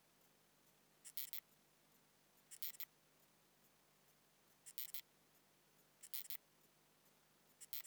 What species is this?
Incertana incerta